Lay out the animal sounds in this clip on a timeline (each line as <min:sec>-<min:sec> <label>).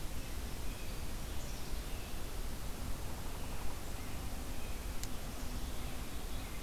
0:01.3-0:02.2 Black-capped Chickadee (Poecile atricapillus)
0:03.4-0:05.0 American Robin (Turdus migratorius)